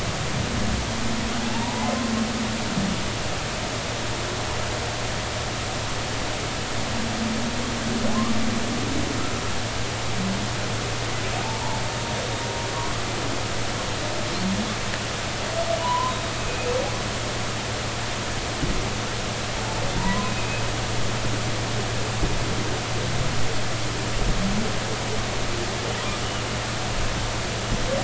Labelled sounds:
1.4	1.8	humpback whale, 0.80 to 1.0 kHz
11.4	11.8	humpback whale, 0.80 to 1.1 kHz
15.8	16.8	humpback whale, 0.90 to 2.6 kHz
19.9	20.5	humpback whale, 0.90 to 2.6 kHz

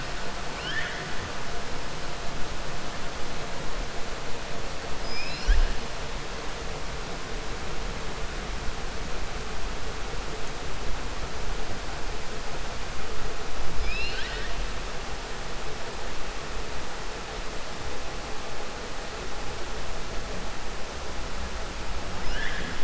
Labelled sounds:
0.5	1.1	killer whale, 1.4 to 5.3 kHz
13.7	14.5	killer whale, 1.5 to 5.5 kHz
22.2	22.8	killer whale, 1.2 to 5.7 kHz

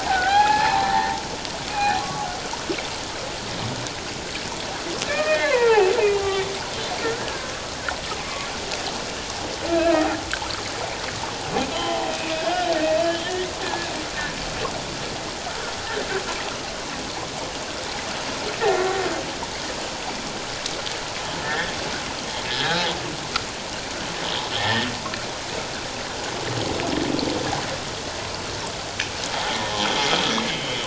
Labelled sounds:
0.0	2.3	humpback whale, 0.78 to 2.6 kHz
5.1	6.5	humpback whale, 0.78 to 2.7 kHz
7.0	7.5	humpback whale, 1.3 to 1.7 kHz
9.7	10.1	humpback whale, 1.2 to 2.7 kHz
11.7	12.8	humpback whale, 0.78 to 3.6 kHz
13.1	13.9	humpback whale, 1.6 to 3.4 kHz
18.6	18.9	humpback whale, 1.8 to 1.9 kHz
21.4	21.7	humpback whale, 1.5 to 1.9 kHz
22.5	22.8	humpback whale, 1.3 to 1.8 kHz
24.6	24.9	humpback whale, 1.7 to 1.9 kHz
29.8	30.8	humpback whale, 2.9 to 3.5 kHz

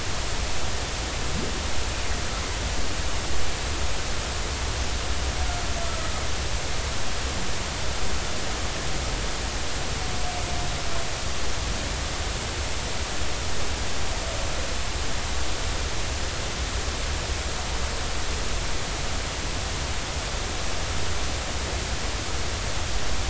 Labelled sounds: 5.8	6.1	humpback whale, 1.2 to 1.4 kHz

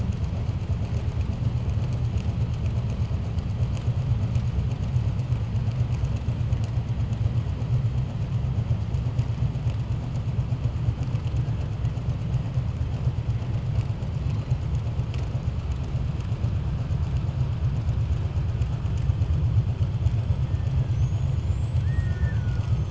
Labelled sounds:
20.8	22.7	killer whale, 1.1 to 7.8 kHz

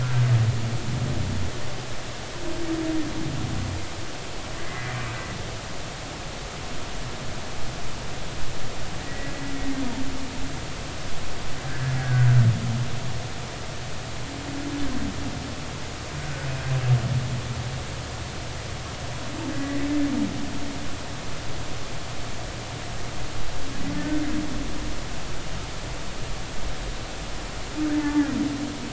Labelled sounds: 4.6	5.0	humpback whale, 1.7 to 2.1 kHz
9.0	9.3	humpback whale, 1.8 to 2.0 kHz
11.7	12.3	humpback whale, 1.4 to 1.8 kHz
16.2	16.5	humpback whale, 1.4 to 1.6 kHz
19.6	19.9	humpback whale, 1.9 to 2.0 kHz
24.0	24.2	humpback whale, 1.7 to 1.9 kHz
28.0	28.3	humpback whale, 0.83 to 1.8 kHz

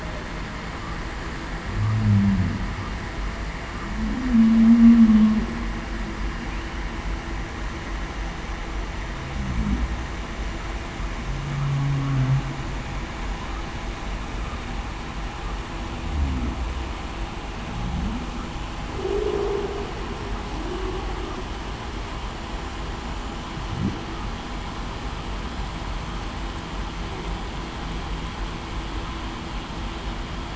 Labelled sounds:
1.9	2.4	humpback whale, 0.19 to 0.23 kHz
4.1	5.3	humpback whale, 0.19 to 0.33 kHz
11.7	12.2	humpback whale, 0.26 to 0.30 kHz
18.9	19.4	humpback whale, 0.33 to 0.47 kHz

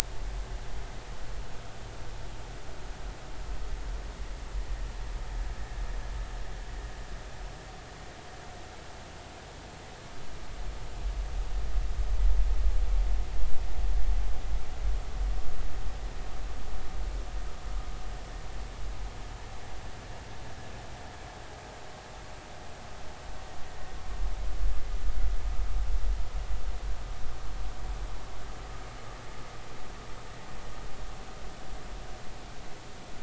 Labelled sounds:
5.5	5.8	vessel noise, 1.7 to 1.9 kHz

